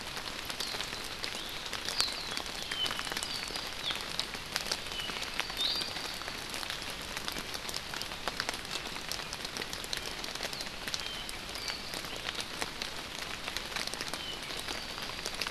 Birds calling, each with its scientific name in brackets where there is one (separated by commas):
Apapane (Himatione sanguinea), Warbling White-eye (Zosterops japonicus), Iiwi (Drepanis coccinea)